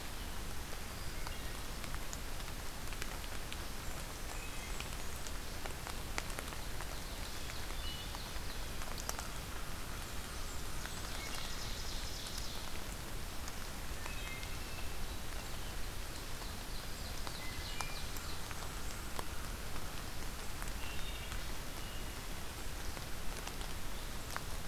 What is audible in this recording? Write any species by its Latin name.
Hylocichla mustelina, Setophaga fusca, Seiurus aurocapilla, Corvus brachyrhynchos